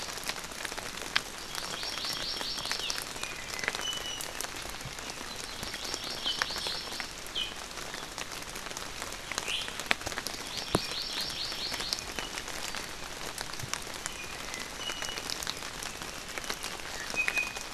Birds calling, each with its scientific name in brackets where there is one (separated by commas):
Iiwi (Drepanis coccinea), Hawaii Amakihi (Chlorodrepanis virens)